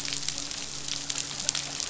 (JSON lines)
{"label": "biophony, midshipman", "recorder": "SoundTrap 500"}